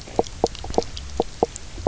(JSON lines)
{"label": "biophony, knock croak", "recorder": "SoundTrap 300"}